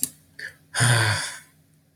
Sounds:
Sigh